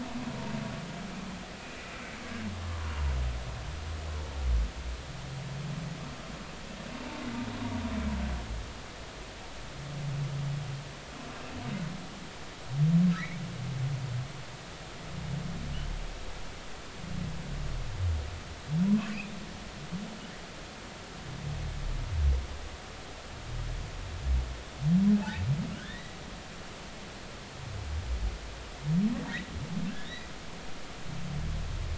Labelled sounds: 2.6	2.9	humpback whale, 0.93 to 1.2 kHz
13.1	13.4	humpback whale, 1.5 to 2.4 kHz
25.7	26.2	humpback whale, 1.3 to 3.7 kHz
29.9	30.3	humpback whale, 1.5 to 2.1 kHz

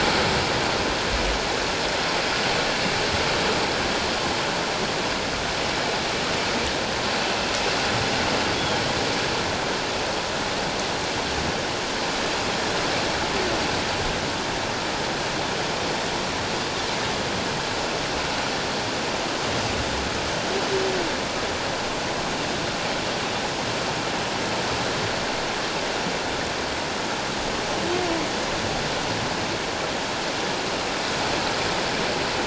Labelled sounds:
8.5	8.8	humpback whale, 3.1 to 3.4 kHz

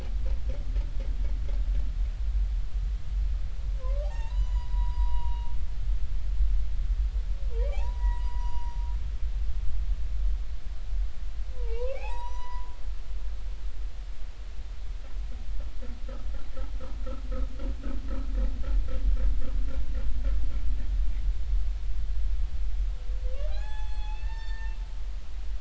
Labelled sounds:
3.8	5.5	humpback whale, 0.80 to 7.0 kHz
7.7	8.8	humpback whale, 0.80 to 7.9 kHz
11.6	12.7	humpback whale, 0.80 to 8.0 kHz
23.5	24.8	humpback whale, 0.80 to 7.8 kHz

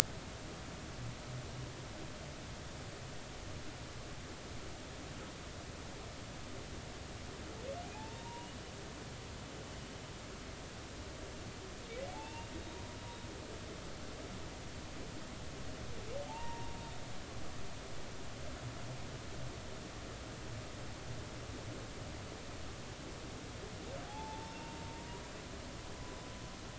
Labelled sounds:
7.9	8.5	humpback whale, 0.80 to 1.0 kHz
12.1	12.5	humpback whale, 0.80 to 2.8 kHz
16.2	16.8	humpback whale, 0.80 to 0.99 kHz
24.1	24.6	humpback whale, 0.80 to 0.96 kHz
24.8	25.2	humpback whale, 0.90 to 1.1 kHz

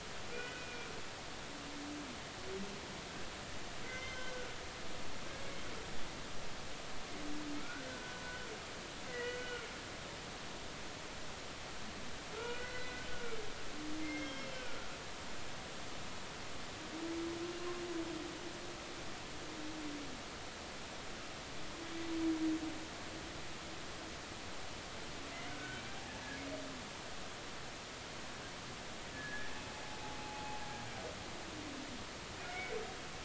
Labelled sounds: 0.3	0.9	humpback whale, 1.4 to 2.6 kHz
3.8	4.5	humpback whale, 1.4 to 6.3 kHz
7.6	7.9	humpback whale, 1.3 to 1.6 kHz
8.2	9.7	humpback whale, 1.4 to 3.0 kHz
12.4	14.9	humpback whale, 1.3 to 5.5 kHz
25.5	25.8	humpback whale, 1.4 to 1.6 kHz
29.1	30.6	humpback whale, 0.80 to 1.8 kHz
32.5	32.7	humpback whale, 2.1 to 2.3 kHz

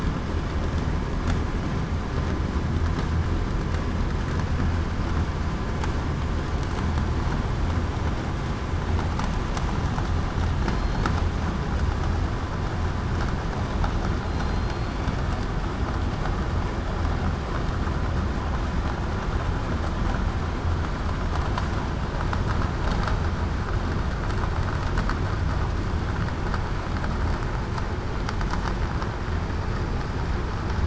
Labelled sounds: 10.7	11.0	killer whale, southern resident, 4.1 to 4.4 kHz
14.2	15.0	killer whale, southern resident, 4.1 to 4.5 kHz

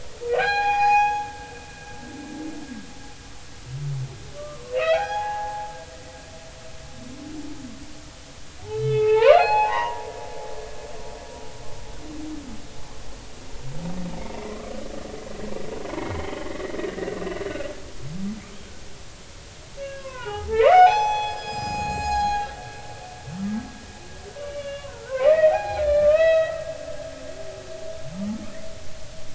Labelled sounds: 0.3	1.3	humpback whale, 0.80 to 6.7 kHz
4.4	5.7	humpback whale, 0.80 to 5.1 kHz
8.7	10.1	humpback whale, 0.80 to 4.4 kHz
15.9	17.4	humpback whale, 1.7 to 2.9 kHz
19.8	22.5	humpback whale, 0.80 to 7.6 kHz
24.4	26.7	humpback whale, 0.80 to 5.2 kHz

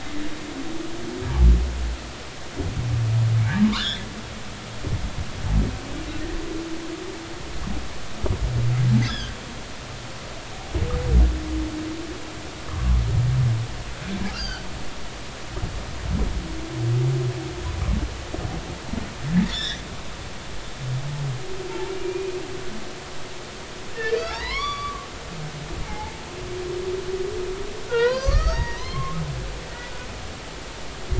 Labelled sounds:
3.6	4.1	humpback whale, 0.90 to 3.9 kHz
9.0	9.3	humpback whale, 1.5 to 5.3 kHz
12.7	13.0	humpback whale, 0.99 to 1.3 kHz
14.3	14.7	humpback whale, 1.2 to 5.0 kHz
19.5	19.8	humpback whale, 1.6 to 5.7 kHz
21.8	22.4	humpback whale, 2.3 to 2.7 kHz
23.9	25.1	humpback whale, 0.80 to 5.8 kHz
25.8	26.1	humpback whale, 0.80 to 0.99 kHz
27.9	29.2	humpback whale, 0.90 to 6.7 kHz

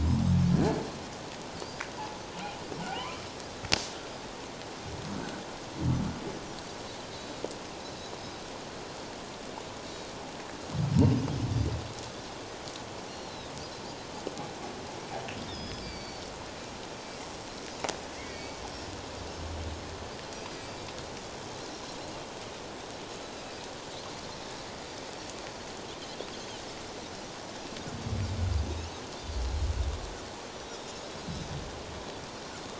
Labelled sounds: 1.6	1.8	Pacific white-sided dolphin, 4.4 to 5.1 kHz
2.9	3.2	humpback whale, 0.78 to 2.5 kHz
7.1	7.4	Pacific white-sided dolphin, 3.6 to 4.2 kHz
13.1	13.5	Pacific white-sided dolphin, 3.5 to 5.8 kHz
15.5	16.2	Pacific white-sided dolphin, 2.2 to 5.4 kHz
18.2	18.6	Pacific white-sided dolphin, 1.8 to 4.6 kHz
20.5	20.8	Pacific white-sided dolphin, 4.6 to 6.3 kHz
30.6	31.0	Pacific white-sided dolphin, 3.6 to 3.9 kHz

